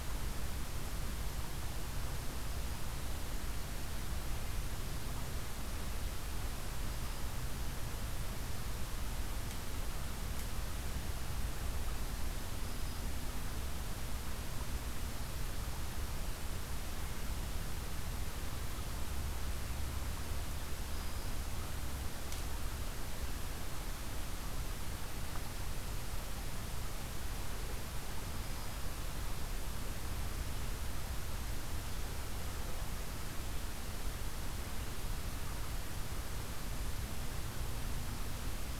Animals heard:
forest ambience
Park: Acadia National Park